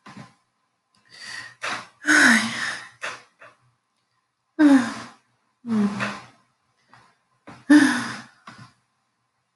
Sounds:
Sigh